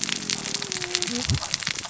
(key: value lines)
label: biophony, cascading saw
recorder: SoundTrap 600 or HydroMoth